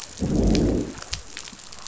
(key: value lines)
label: biophony, growl
recorder: SoundTrap 500